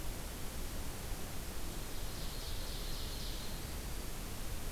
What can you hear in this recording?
Ovenbird, Black-throated Green Warbler